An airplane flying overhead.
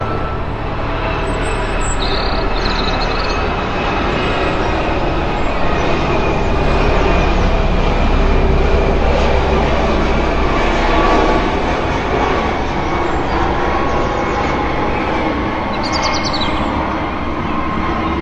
12.5 18.2

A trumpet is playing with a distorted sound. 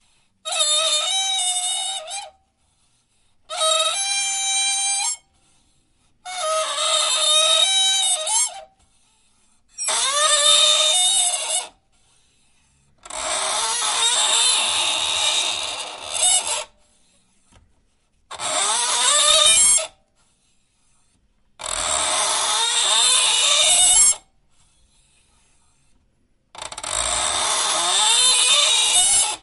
0.3 2.4, 3.4 5.3, 6.1 8.7, 9.7 11.9, 12.9 16.7, 18.3 20.0, 21.5 24.3, 26.5 29.4

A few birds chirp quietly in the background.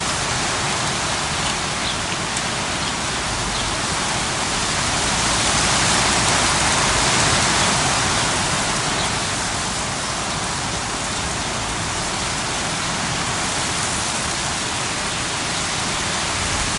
1.8 4.7, 9.0 11.9

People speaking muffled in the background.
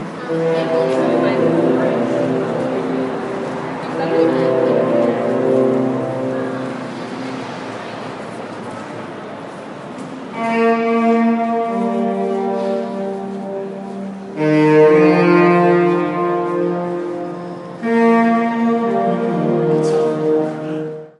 6.8 10.3

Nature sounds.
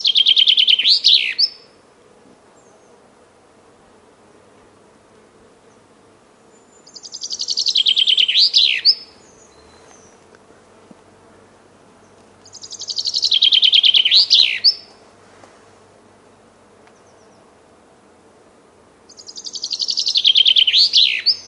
14.8 19.1

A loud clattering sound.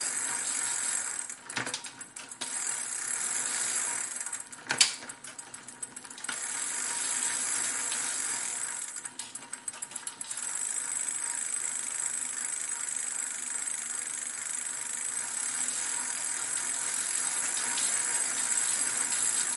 4.7 5.1

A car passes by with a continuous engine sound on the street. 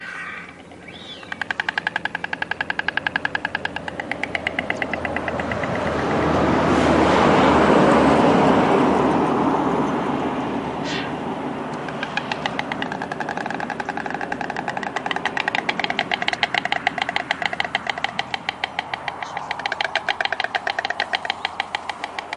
5.1 10.7

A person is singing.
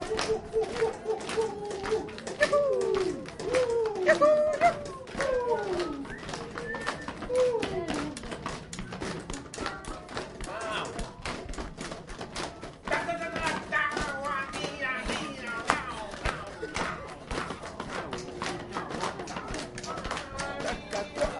12.9 17.0, 20.3 21.4

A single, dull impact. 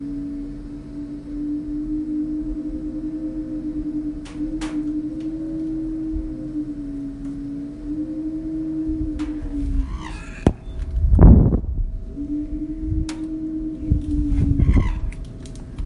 10.4 10.6

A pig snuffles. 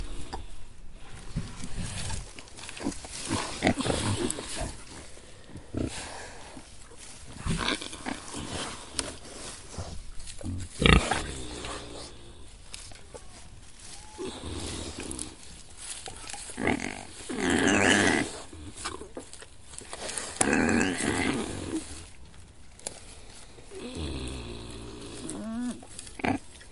7.1 9.2

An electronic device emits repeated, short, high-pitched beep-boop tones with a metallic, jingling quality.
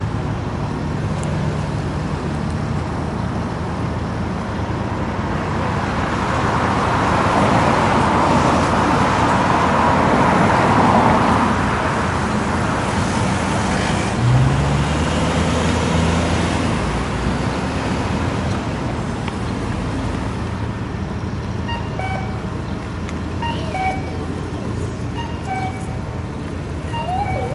21.5 22.4, 23.3 24.3, 24.9 27.5

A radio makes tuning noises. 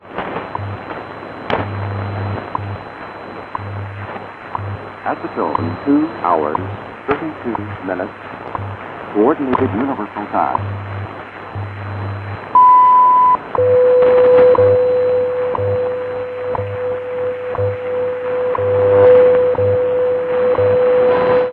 0.0 12.5

